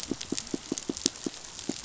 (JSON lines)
{"label": "biophony, pulse", "recorder": "SoundTrap 500"}